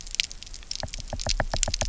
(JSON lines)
{"label": "biophony, knock", "recorder": "SoundTrap 300"}